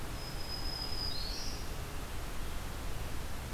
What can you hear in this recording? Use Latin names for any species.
Setophaga virens